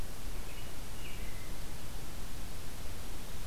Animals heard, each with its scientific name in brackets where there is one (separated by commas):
American Robin (Turdus migratorius)